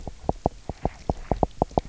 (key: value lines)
label: biophony, knock
recorder: SoundTrap 300